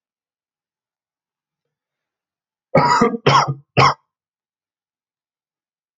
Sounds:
Cough